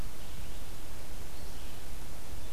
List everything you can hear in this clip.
Red-eyed Vireo